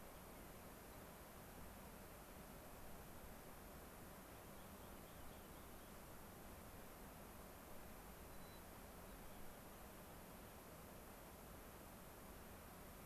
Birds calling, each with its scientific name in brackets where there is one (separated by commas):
Rock Wren (Salpinctes obsoletus), White-crowned Sparrow (Zonotrichia leucophrys)